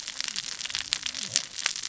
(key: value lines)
label: biophony, cascading saw
recorder: SoundTrap 600 or HydroMoth